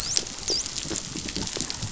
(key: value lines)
label: biophony, dolphin
recorder: SoundTrap 500